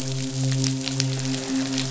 {"label": "biophony, midshipman", "recorder": "SoundTrap 500"}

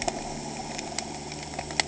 {"label": "anthrophony, boat engine", "recorder": "HydroMoth"}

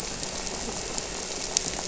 {"label": "anthrophony, boat engine", "recorder": "SoundTrap 300"}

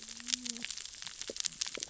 {"label": "biophony, cascading saw", "recorder": "SoundTrap 600 or HydroMoth"}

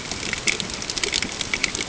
{"label": "ambient", "recorder": "HydroMoth"}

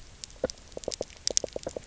{"label": "biophony, knock", "recorder": "SoundTrap 300"}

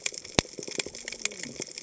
{"label": "biophony, cascading saw", "recorder": "HydroMoth"}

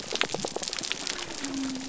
{"label": "biophony", "recorder": "SoundTrap 300"}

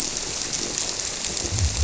{"label": "biophony", "recorder": "SoundTrap 300"}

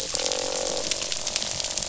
{"label": "biophony, croak", "recorder": "SoundTrap 500"}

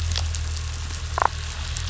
{"label": "anthrophony, boat engine", "recorder": "SoundTrap 500"}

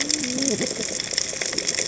{"label": "biophony, cascading saw", "recorder": "HydroMoth"}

